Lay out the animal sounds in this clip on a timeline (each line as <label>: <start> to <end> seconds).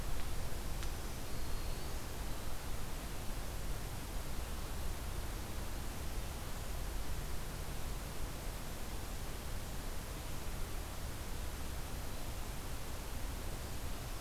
Black-throated Green Warbler (Setophaga virens): 0.4 to 2.2 seconds